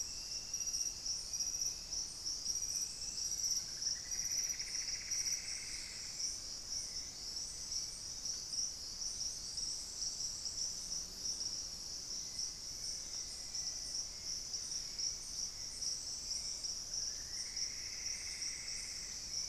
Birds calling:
Hauxwell's Thrush (Turdus hauxwelli), Plumbeous Antbird (Myrmelastes hyperythrus), Black-faced Antthrush (Formicarius analis)

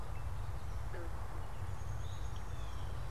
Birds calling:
Blue Jay (Cyanocitta cristata), Downy Woodpecker (Dryobates pubescens), Eastern Towhee (Pipilo erythrophthalmus)

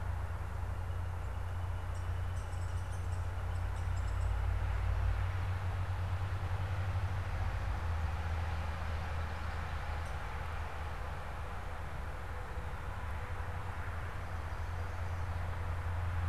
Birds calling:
Downy Woodpecker (Dryobates pubescens), Common Yellowthroat (Geothlypis trichas), Northern Flicker (Colaptes auratus)

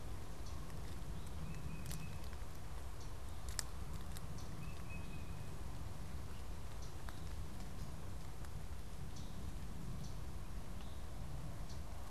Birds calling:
unidentified bird, Tufted Titmouse (Baeolophus bicolor)

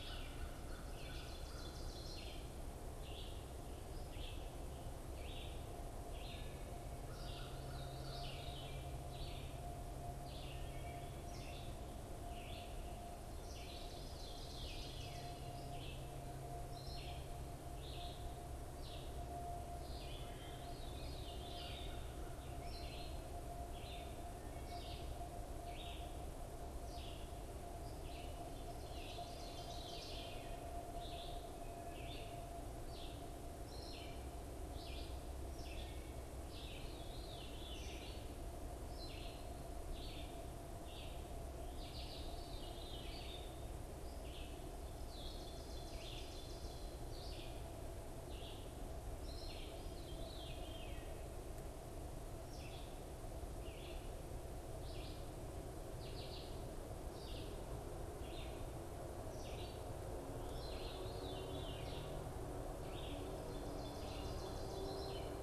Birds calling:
American Crow (Corvus brachyrhynchos), Veery (Catharus fuscescens), Red-eyed Vireo (Vireo olivaceus), Ovenbird (Seiurus aurocapilla)

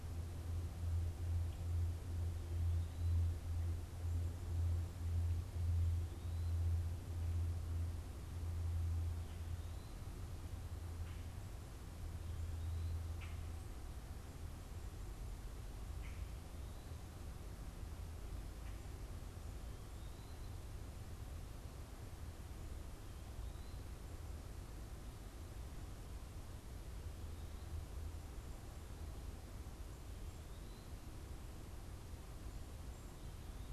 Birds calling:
Common Grackle (Quiscalus quiscula), Eastern Wood-Pewee (Contopus virens)

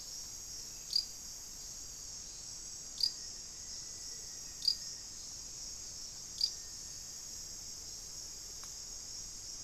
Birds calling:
Black-faced Antthrush (Formicarius analis), Amazonian Motmot (Momotus momota)

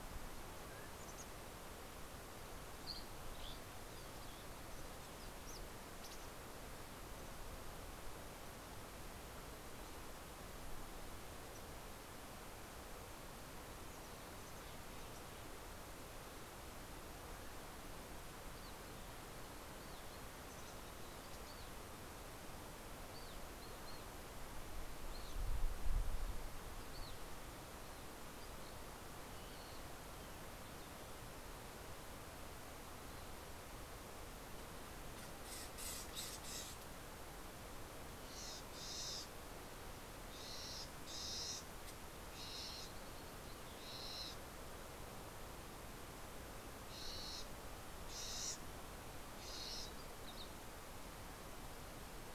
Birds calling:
Mountain Chickadee (Poecile gambeli), Warbling Vireo (Vireo gilvus), Dusky Flycatcher (Empidonax oberholseri)

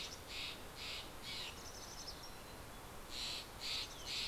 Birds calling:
Steller's Jay (Cyanocitta stelleri), Mountain Chickadee (Poecile gambeli)

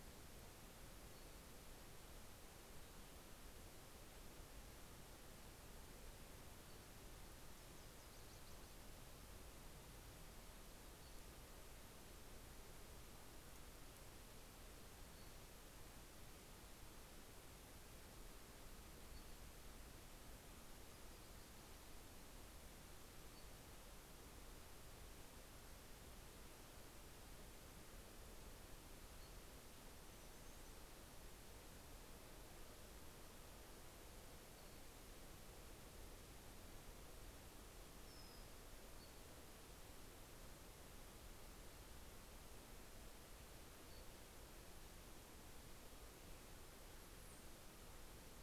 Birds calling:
American Robin (Turdus migratorius), Nashville Warbler (Leiothlypis ruficapilla), Pacific-slope Flycatcher (Empidonax difficilis)

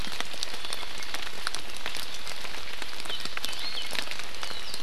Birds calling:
Iiwi (Drepanis coccinea)

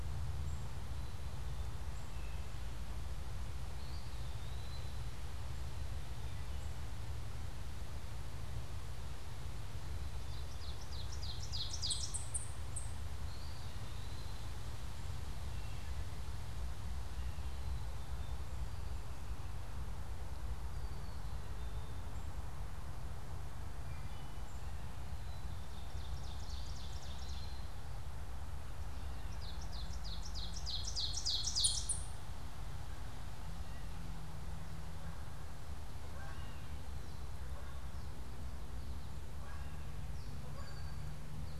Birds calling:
Eastern Wood-Pewee (Contopus virens), Ovenbird (Seiurus aurocapilla), Red-winged Blackbird (Agelaius phoeniceus), Canada Goose (Branta canadensis), Black-capped Chickadee (Poecile atricapillus), Wood Thrush (Hylocichla mustelina)

